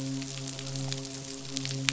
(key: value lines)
label: biophony, midshipman
recorder: SoundTrap 500